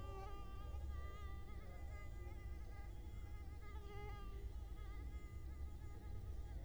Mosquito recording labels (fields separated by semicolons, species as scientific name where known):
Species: Culex quinquefasciatus; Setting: cup